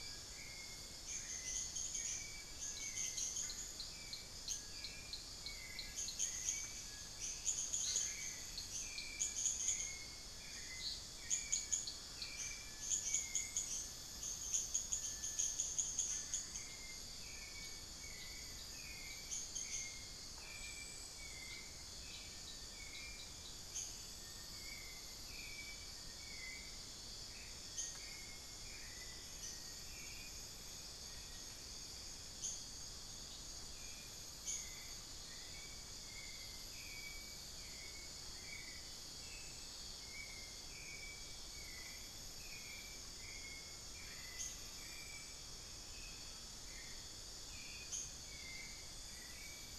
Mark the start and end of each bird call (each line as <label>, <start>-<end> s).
Little Tinamou (Crypturellus soui), 0.0-31.6 s
Hauxwell's Thrush (Turdus hauxwelli), 0.0-49.8 s
unidentified bird, 0.0-49.8 s
Black-faced Antthrush (Formicarius analis), 27.1-27.7 s
Amazonian Pygmy-Owl (Glaucidium hardyi), 33.5-35.8 s
Long-billed Woodcreeper (Nasica longirostris), 42.5-48.1 s
Amazonian Pygmy-Owl (Glaucidium hardyi), 43.5-46.6 s